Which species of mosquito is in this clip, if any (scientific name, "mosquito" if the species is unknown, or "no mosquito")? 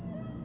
Aedes albopictus